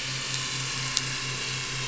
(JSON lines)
{"label": "anthrophony, boat engine", "recorder": "SoundTrap 500"}